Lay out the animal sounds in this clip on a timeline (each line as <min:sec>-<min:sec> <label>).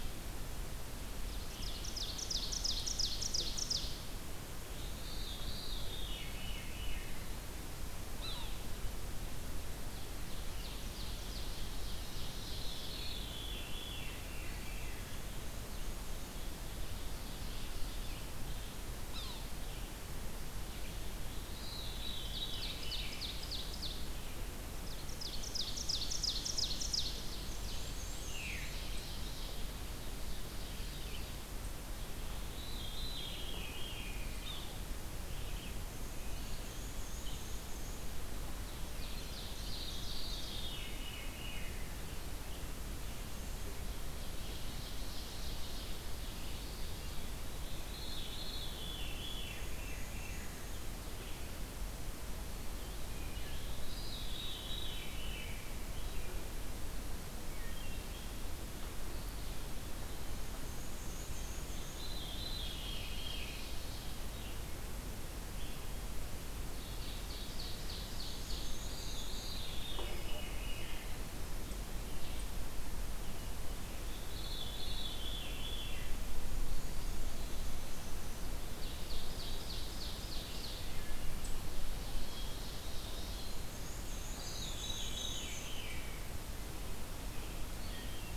0:00.0-0:37.4 Red-eyed Vireo (Vireo olivaceus)
0:01.0-0:04.0 Ovenbird (Seiurus aurocapilla)
0:05.0-0:07.1 Veery (Catharus fuscescens)
0:08.0-0:08.7 Yellow-bellied Sapsucker (Sphyrapicus varius)
0:09.8-0:13.0 Ovenbird (Seiurus aurocapilla)
0:12.9-0:14.6 Veery (Catharus fuscescens)
0:14.3-0:15.7 Eastern Wood-Pewee (Contopus virens)
0:15.2-0:16.5 Black-and-white Warbler (Mniotilta varia)
0:16.1-0:18.4 Ovenbird (Seiurus aurocapilla)
0:18.7-0:19.6 Yellow-bellied Sapsucker (Sphyrapicus varius)
0:21.2-0:24.3 Ovenbird (Seiurus aurocapilla)
0:21.6-0:23.2 Veery (Catharus fuscescens)
0:24.8-0:27.9 Ovenbird (Seiurus aurocapilla)
0:27.3-0:28.8 Black-and-white Warbler (Mniotilta varia)
0:28.2-0:28.8 Veery (Catharus fuscescens)
0:28.2-0:31.4 Ovenbird (Seiurus aurocapilla)
0:32.5-0:34.4 Veery (Catharus fuscescens)
0:34.3-0:35.0 Yellow-bellied Sapsucker (Sphyrapicus varius)
0:35.6-0:38.2 Black-and-white Warbler (Mniotilta varia)
0:36.4-0:37.7 Eastern Wood-Pewee (Contopus virens)
0:38.6-0:40.7 Ovenbird (Seiurus aurocapilla)
0:39.6-0:41.8 Veery (Catharus fuscescens)
0:44.0-0:46.8 Ovenbird (Seiurus aurocapilla)
0:46.4-0:48.0 Eastern Wood-Pewee (Contopus virens)
0:47.5-1:28.4 Red-eyed Vireo (Vireo olivaceus)
0:47.8-0:50.6 Veery (Catharus fuscescens)
0:49.4-0:50.9 Black-and-white Warbler (Mniotilta varia)
0:52.4-0:55.6 Veery (Catharus fuscescens)
0:57.4-0:58.4 Wood Thrush (Hylocichla mustelina)
0:58.9-1:00.5 Eastern Wood-Pewee (Contopus virens)
1:00.6-1:02.1 Black-and-white Warbler (Mniotilta varia)
1:01.9-1:03.6 Veery (Catharus fuscescens)
1:02.5-1:04.3 Ovenbird (Seiurus aurocapilla)
1:06.5-1:09.0 Ovenbird (Seiurus aurocapilla)
1:08.1-1:09.6 Black-and-white Warbler (Mniotilta varia)
1:08.7-1:11.2 Veery (Catharus fuscescens)
1:14.1-1:16.1 Veery (Catharus fuscescens)
1:16.3-1:17.4 Black-and-white Warbler (Mniotilta varia)
1:18.6-1:21.2 Ovenbird (Seiurus aurocapilla)
1:20.7-1:21.4 Wood Thrush (Hylocichla mustelina)
1:21.6-1:23.5 Ovenbird (Seiurus aurocapilla)
1:23.6-1:25.7 Black-and-white Warbler (Mniotilta varia)
1:24.4-1:26.1 Veery (Catharus fuscescens)
1:27.6-1:28.4 Wood Thrush (Hylocichla mustelina)